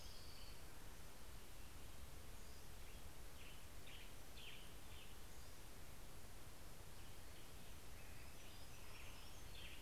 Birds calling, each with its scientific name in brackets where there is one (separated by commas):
Orange-crowned Warbler (Leiothlypis celata), Western Tanager (Piranga ludoviciana), Hermit Warbler (Setophaga occidentalis)